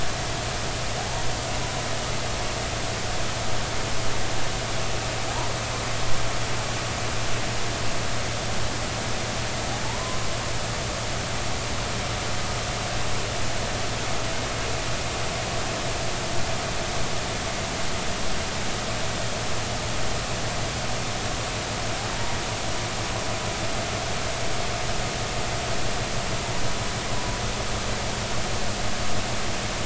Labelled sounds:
1.0	1.2	humpback whale, 0.80 to 0.99 kHz
5.3	5.5	humpback whale, 0.80 to 1.1 kHz
9.8	10.2	humpback whale, 0.83 to 1.1 kHz
22.1	22.4	humpback whale, 0.86 to 0.99 kHz

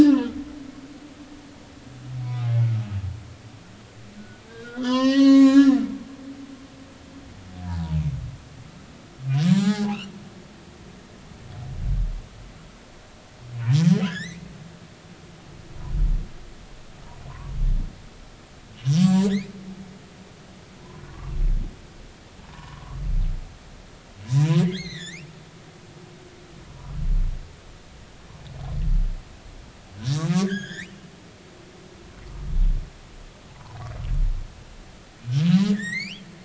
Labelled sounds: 0.2	2.7	humpback whale, 0.86 to 2.4 kHz
4.2	5.8	humpback whale, 0.80 to 7.4 kHz
9.5	10.0	humpback whale, 0.80 to 4.7 kHz
14.0	14.5	humpback whale, 1.2 to 7.6 kHz
19.0	19.3	humpback whale, 1.6 to 1.8 kHz
21.1	21.3	humpback whale, 0.90 to 1.2 kHz
22.5	23.0	humpback whale, 0.90 to 1.2 kHz
24.6	25.6	humpback whale, 0.90 to 6.6 kHz
30.5	31.1	humpback whale, 1.4 to 7.5 kHz
33.5	33.8	humpback whale, 0.80 to 1.1 kHz
35.4	36.2	humpback whale, 1.6 to 8.0 kHz

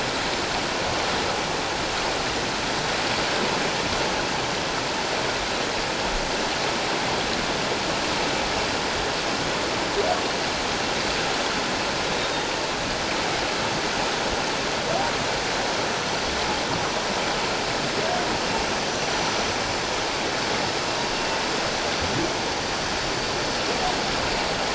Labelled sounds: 12.0	12.5	humpback whale, 3.6 to 4.0 kHz

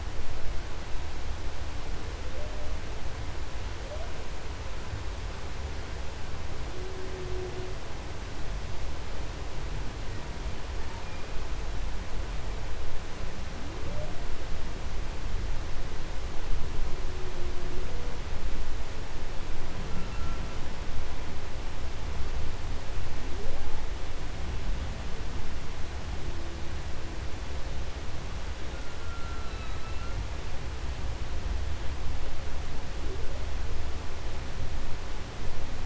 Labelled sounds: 1.6	3.0	humpback whale, 0.15 to 0.93 kHz
3.6	4.8	humpback whale, 0.22 to 0.97 kHz
6.4	7.9	humpback whale, 0.15 to 0.89 kHz
9.8	11.6	humpback whale, 0.54 to 2.9 kHz
13.2	14.4	humpback whale, 0.07 to 1.1 kHz
16.7	18.3	humpback whale, 0.22 to 0.84 kHz
19.7	20.7	humpback whale, 1.1 to 2.9 kHz
23.0	24.2	humpback whale, 0.17 to 1.3 kHz
28.5	30.7	humpback whale, 1.0 to 4.7 kHz
32.2	33.7	humpback whale, 0.17 to 1.0 kHz

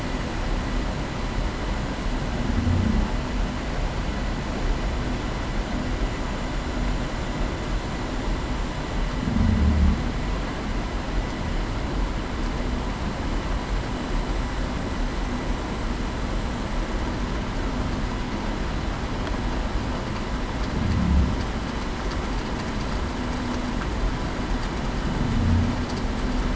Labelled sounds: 9.2	9.6	humpback whale, 0.19 to 0.26 kHz

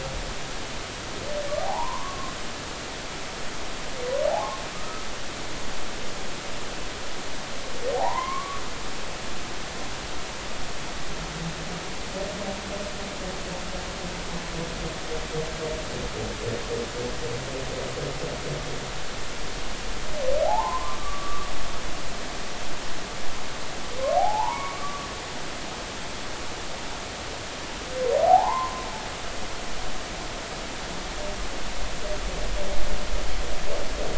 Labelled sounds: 1.6	2.3	humpback whale, 0.80 to 1.2 kHz
4.3	5.1	humpback whale, 0.80 to 1.4 kHz
7.9	8.6	humpback whale, 0.80 to 2.3 kHz
20.4	21.5	humpback whale, 0.80 to 1.2 kHz
24.2	25.1	humpback whale, 0.80 to 2.4 kHz
28.1	28.8	humpback whale, 0.80 to 1.1 kHz

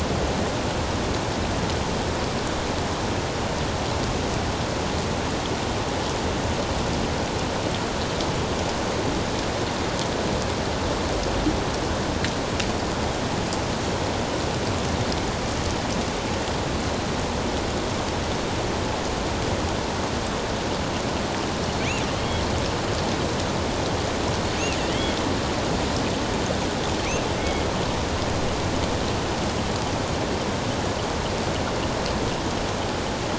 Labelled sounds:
22.2	22.4	killer whale, offshore, 3.1 to 3.4 kHz
24.8	25.2	killer whale, offshore, 1.9 to 3.4 kHz
27.4	27.6	killer whale, offshore, 2.0 to 2.3 kHz

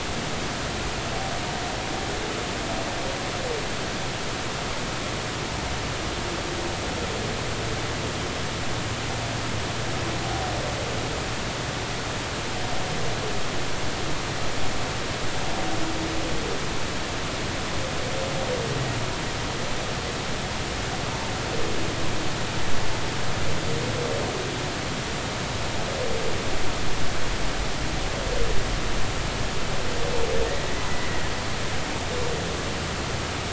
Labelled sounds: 30.9	31.1	humpback whale, 1.9 to 2.1 kHz

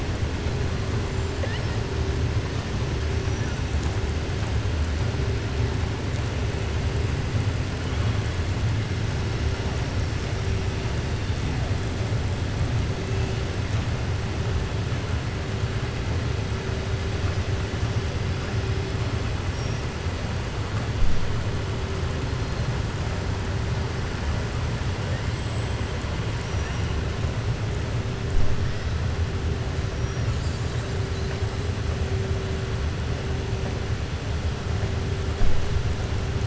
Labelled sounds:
26.3	26.8	killer whale, southern resident, 4.8 to 6.7 kHz

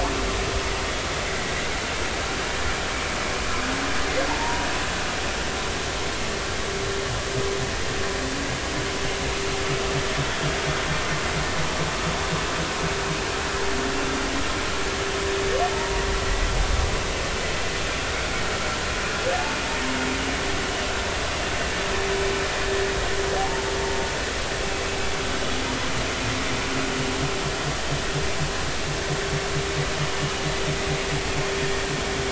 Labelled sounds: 1.3	1.5	humpback whale, 1.9 to 2.1 kHz
4.3	4.7	humpback whale, 0.86 to 0.99 kHz
15.7	16.5	humpback whale, 0.86 to 2.0 kHz
23.4	23.7	humpback whale, 0.80 to 0.96 kHz

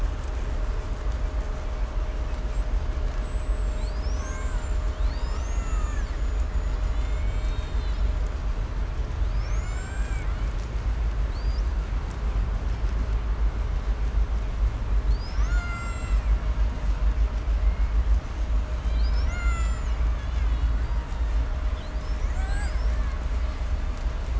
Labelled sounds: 2.2	6.3	killer whale, Bigg's (transient), 0.57 to 8.0 kHz
6.1	8.4	killer whale, 0.81 to 8.0 kHz
9.2	10.5	killer whale, Bigg's (transient), call T01, 0.48 to 8.0 kHz
11.2	11.7	killer whale, 3.6 to 8.0 kHz
15.0	16.3	killer whale, Bigg's (transient), call T01, 0.63 to 8.0 kHz
16.2	17.1	killer whale, Bigg's (transient), call T02, 0.69 to 7.7 kHz
17.4	18.0	killer whale, Bigg's (transient), call T01, 1.4 to 3.1 kHz
18.6	20.8	killer whale, Bigg's (transient), call T01, 0.36 to 8.0 kHz
20.8	21.6	killer whale, Bigg's (transient), call T02, 0.51 to 4.7 kHz
21.7	24.3	killer whale, 0.54 to 8.0 kHz

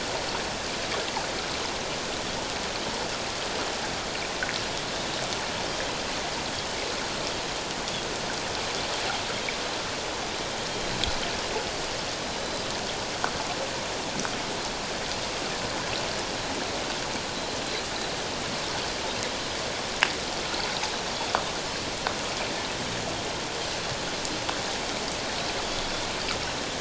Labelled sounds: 4.9	5.2	Pacific white-sided dolphin, 3.5 to 3.8 kHz

